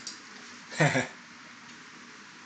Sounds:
Laughter